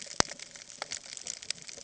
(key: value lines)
label: ambient
recorder: HydroMoth